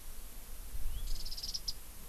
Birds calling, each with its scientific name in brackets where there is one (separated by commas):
Warbling White-eye (Zosterops japonicus)